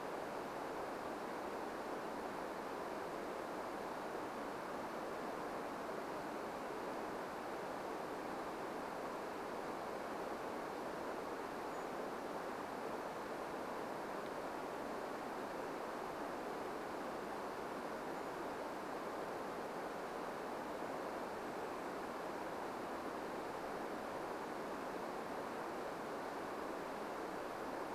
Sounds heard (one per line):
Chestnut-backed Chickadee call
Brown Creeper call